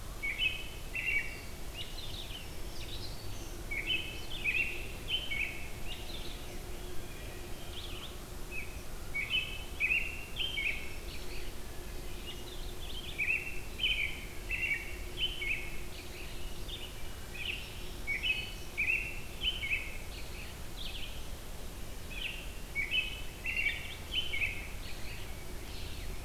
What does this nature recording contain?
Red-eyed Vireo, American Robin, Black-throated Green Warbler, Wood Thrush